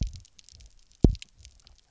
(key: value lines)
label: biophony, double pulse
recorder: SoundTrap 300